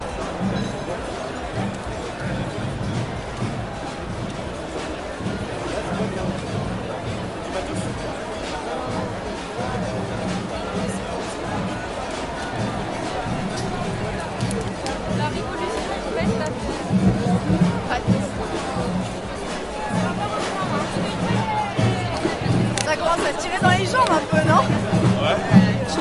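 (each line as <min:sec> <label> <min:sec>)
0:00.0 Many people are speaking simultaneously in the distance outside. 0:26.0
0:03.6 Music or footsteps sound in rhythm, similar to an army parade. 0:26.0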